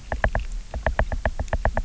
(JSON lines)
{"label": "biophony, knock", "recorder": "SoundTrap 300"}